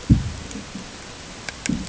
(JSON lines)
{"label": "ambient", "recorder": "HydroMoth"}